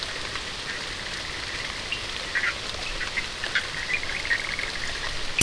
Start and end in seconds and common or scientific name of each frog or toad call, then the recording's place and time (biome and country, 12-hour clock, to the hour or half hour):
0.0	5.1	Bischoff's tree frog
Atlantic Forest, Brazil, 2am